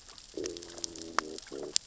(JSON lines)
{"label": "biophony, growl", "recorder": "SoundTrap 600 or HydroMoth"}